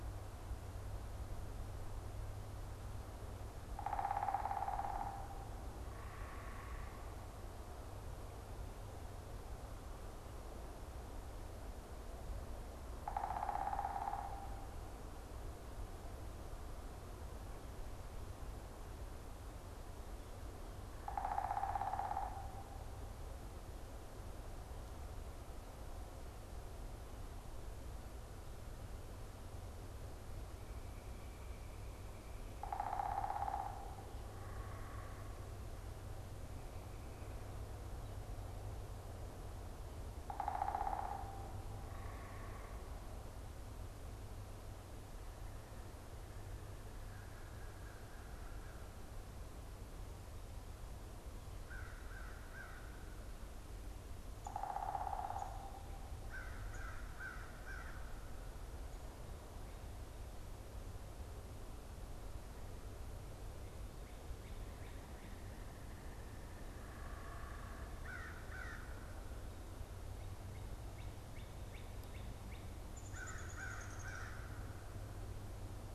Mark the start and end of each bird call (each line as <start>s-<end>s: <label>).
3.6s-5.5s: unidentified bird
5.8s-7.3s: unidentified bird
12.9s-14.8s: unidentified bird
20.7s-22.9s: unidentified bird
32.5s-35.6s: unidentified bird
40.2s-43.0s: unidentified bird
46.9s-49.2s: American Crow (Corvus brachyrhynchos)
51.3s-52.9s: American Crow (Corvus brachyrhynchos)
54.2s-57.0s: unidentified bird
56.3s-58.0s: American Crow (Corvus brachyrhynchos)
66.4s-67.9s: unidentified bird
67.9s-69.0s: American Crow (Corvus brachyrhynchos)
70.3s-72.7s: Northern Cardinal (Cardinalis cardinalis)
72.7s-74.4s: Downy Woodpecker (Dryobates pubescens)
73.0s-74.7s: American Crow (Corvus brachyrhynchos)